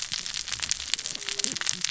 {"label": "biophony, cascading saw", "recorder": "SoundTrap 600 or HydroMoth"}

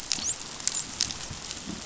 {"label": "biophony, dolphin", "recorder": "SoundTrap 500"}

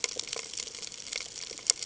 {"label": "ambient", "recorder": "HydroMoth"}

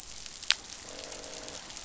{"label": "biophony, croak", "recorder": "SoundTrap 500"}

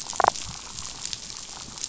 {"label": "biophony, damselfish", "recorder": "SoundTrap 500"}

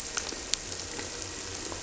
{"label": "anthrophony, boat engine", "recorder": "SoundTrap 300"}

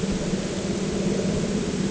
{"label": "anthrophony, boat engine", "recorder": "HydroMoth"}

